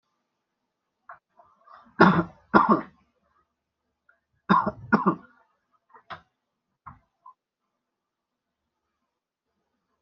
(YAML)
expert_labels:
- quality: ok
  cough_type: dry
  dyspnea: false
  wheezing: false
  stridor: false
  choking: false
  congestion: false
  nothing: true
  diagnosis: healthy cough
  severity: pseudocough/healthy cough
age: 26
gender: male
respiratory_condition: false
fever_muscle_pain: false
status: symptomatic